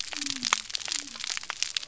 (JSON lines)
{"label": "biophony", "recorder": "SoundTrap 300"}